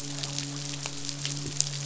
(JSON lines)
{"label": "biophony, midshipman", "recorder": "SoundTrap 500"}